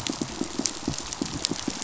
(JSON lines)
{"label": "biophony, pulse", "recorder": "SoundTrap 500"}